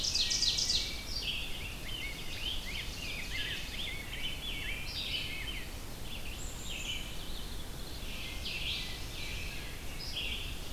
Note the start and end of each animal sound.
0.0s-1.1s: Ovenbird (Seiurus aurocapilla)
0.0s-10.7s: Red-eyed Vireo (Vireo olivaceus)
0.1s-1.0s: Wood Thrush (Hylocichla mustelina)
1.5s-6.0s: Rose-breasted Grosbeak (Pheucticus ludovicianus)
1.8s-4.2s: Ovenbird (Seiurus aurocapilla)
6.3s-7.2s: Black-capped Chickadee (Poecile atricapillus)
7.8s-9.8s: Ovenbird (Seiurus aurocapilla)
9.4s-10.1s: Wood Thrush (Hylocichla mustelina)

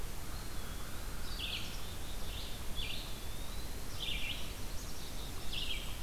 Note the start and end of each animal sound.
0.0s-1.5s: Eastern Wood-Pewee (Contopus virens)
1.1s-6.0s: Red-eyed Vireo (Vireo olivaceus)
1.5s-2.4s: Black-capped Chickadee (Poecile atricapillus)
2.5s-4.2s: Eastern Wood-Pewee (Contopus virens)
4.6s-5.7s: Black-capped Chickadee (Poecile atricapillus)

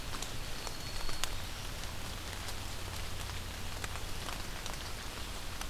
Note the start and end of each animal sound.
0.3s-1.8s: Black-throated Green Warbler (Setophaga virens)

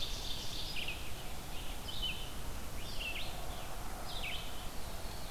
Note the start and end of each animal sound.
0.0s-0.8s: Ovenbird (Seiurus aurocapilla)
0.0s-5.3s: Red-eyed Vireo (Vireo olivaceus)
4.7s-5.3s: Veery (Catharus fuscescens)

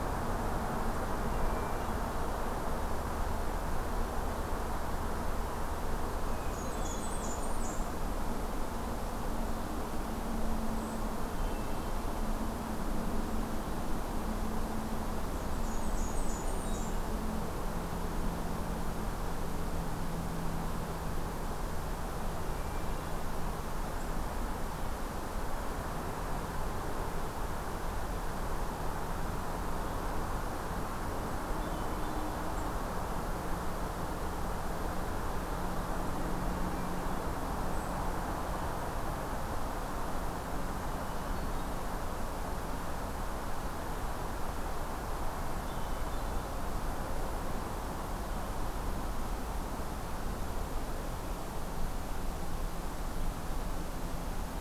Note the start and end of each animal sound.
1.2s-2.2s: Hermit Thrush (Catharus guttatus)
6.3s-7.3s: Hermit Thrush (Catharus guttatus)
6.5s-7.9s: Blackburnian Warbler (Setophaga fusca)
11.3s-12.1s: Hermit Thrush (Catharus guttatus)
15.4s-17.0s: Blackburnian Warbler (Setophaga fusca)
16.3s-17.1s: Hermit Thrush (Catharus guttatus)
22.5s-23.2s: Hermit Thrush (Catharus guttatus)
31.5s-32.4s: Hermit Thrush (Catharus guttatus)
41.0s-41.8s: Hermit Thrush (Catharus guttatus)
45.6s-46.6s: Hermit Thrush (Catharus guttatus)

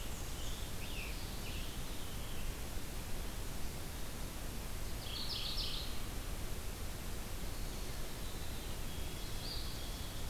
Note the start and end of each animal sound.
0.0s-0.7s: Black-and-white Warbler (Mniotilta varia)
0.0s-1.9s: Scarlet Tanager (Piranga olivacea)
1.0s-2.6s: Veery (Catharus fuscescens)
4.8s-6.0s: Mourning Warbler (Geothlypis philadelphia)
7.3s-9.7s: White-throated Sparrow (Zonotrichia albicollis)
9.2s-10.2s: Eastern Wood-Pewee (Contopus virens)

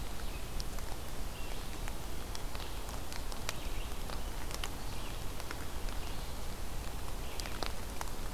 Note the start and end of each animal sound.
0.0s-8.3s: Red-eyed Vireo (Vireo olivaceus)

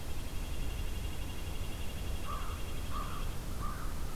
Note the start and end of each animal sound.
0.0s-3.4s: Red-breasted Nuthatch (Sitta canadensis)
2.2s-4.2s: American Crow (Corvus brachyrhynchos)

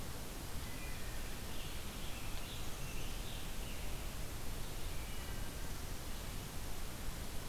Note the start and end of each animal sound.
0.6s-4.2s: Scarlet Tanager (Piranga olivacea)
4.7s-5.5s: Wood Thrush (Hylocichla mustelina)

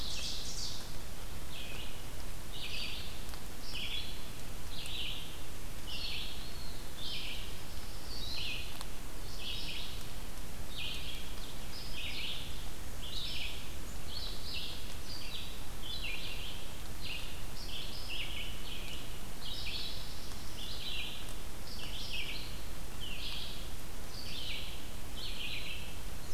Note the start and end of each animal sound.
0.0s-1.0s: Ovenbird (Seiurus aurocapilla)
0.0s-26.3s: Red-eyed Vireo (Vireo olivaceus)
6.2s-7.0s: Eastern Wood-Pewee (Contopus virens)
19.2s-20.7s: Black-throated Blue Warbler (Setophaga caerulescens)

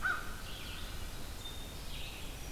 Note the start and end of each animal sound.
0.0s-2.0s: American Crow (Corvus brachyrhynchos)
0.0s-2.5s: Red-eyed Vireo (Vireo olivaceus)
0.7s-2.1s: Black-throated Green Warbler (Setophaga virens)

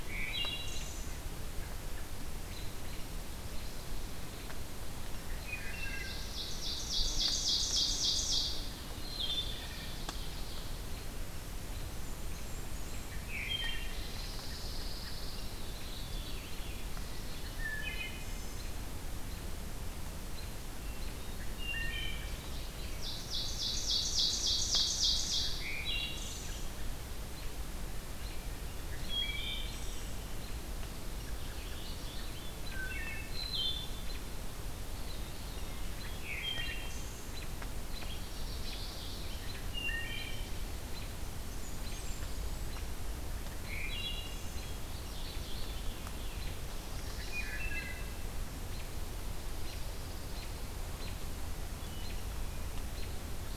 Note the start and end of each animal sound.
0.0s-1.3s: Wood Thrush (Hylocichla mustelina)
2.4s-2.7s: American Robin (Turdus migratorius)
5.4s-6.3s: Wood Thrush (Hylocichla mustelina)
5.6s-8.7s: Ovenbird (Seiurus aurocapilla)
8.9s-9.7s: Wood Thrush (Hylocichla mustelina)
9.4s-11.1s: Pine Warbler (Setophaga pinus)
12.0s-13.2s: Blackburnian Warbler (Setophaga fusca)
13.2s-14.0s: Wood Thrush (Hylocichla mustelina)
13.9s-15.6s: Pine Warbler (Setophaga pinus)
15.9s-17.1s: Hermit Thrush (Catharus guttatus)
17.6s-18.7s: Wood Thrush (Hylocichla mustelina)
20.8s-21.9s: Hermit Thrush (Catharus guttatus)
21.4s-22.3s: Wood Thrush (Hylocichla mustelina)
22.8s-25.8s: Ovenbird (Seiurus aurocapilla)
25.6s-26.7s: Wood Thrush (Hylocichla mustelina)
28.9s-30.3s: Wood Thrush (Hylocichla mustelina)
31.4s-32.3s: Mourning Warbler (Geothlypis philadelphia)
32.5s-34.0s: Wood Thrush (Hylocichla mustelina)
34.7s-36.2s: Veery (Catharus fuscescens)
36.1s-37.5s: Wood Thrush (Hylocichla mustelina)
38.0s-39.5s: Ovenbird (Seiurus aurocapilla)
39.7s-40.5s: Wood Thrush (Hylocichla mustelina)
41.3s-42.6s: Blackburnian Warbler (Setophaga fusca)
42.6s-43.1s: American Robin (Turdus migratorius)
43.6s-44.4s: Wood Thrush (Hylocichla mustelina)
44.9s-46.0s: Ovenbird (Seiurus aurocapilla)
46.6s-47.7s: Chestnut-sided Warbler (Setophaga pensylvanica)
47.2s-48.1s: Wood Thrush (Hylocichla mustelina)
49.6s-50.7s: Pine Warbler (Setophaga pinus)
52.9s-53.2s: American Robin (Turdus migratorius)

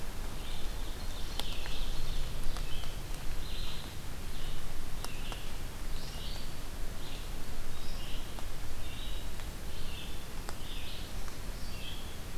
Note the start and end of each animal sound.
0.0s-5.5s: Red-eyed Vireo (Vireo olivaceus)
0.8s-2.6s: Ovenbird (Seiurus aurocapilla)
5.8s-12.4s: Red-eyed Vireo (Vireo olivaceus)
10.2s-11.5s: Black-throated Green Warbler (Setophaga virens)

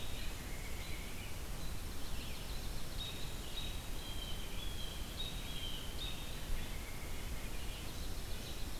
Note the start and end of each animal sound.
0.0s-1.1s: Red-breasted Nuthatch (Sitta canadensis)
0.0s-8.8s: Red-eyed Vireo (Vireo olivaceus)
1.7s-3.2s: Dark-eyed Junco (Junco hyemalis)
2.9s-6.3s: Blue Jay (Cyanocitta cristata)
6.4s-7.5s: American Robin (Turdus migratorius)
7.7s-8.8s: Dark-eyed Junco (Junco hyemalis)

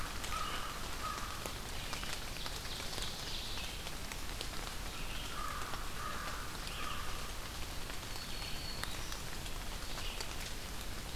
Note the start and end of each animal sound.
0.0s-1.4s: American Crow (Corvus brachyrhynchos)
0.0s-11.2s: Red-eyed Vireo (Vireo olivaceus)
1.5s-3.7s: Ovenbird (Seiurus aurocapilla)
5.2s-7.4s: American Crow (Corvus brachyrhynchos)
7.9s-9.3s: Black-throated Green Warbler (Setophaga virens)

